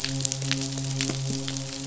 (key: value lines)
label: biophony, midshipman
recorder: SoundTrap 500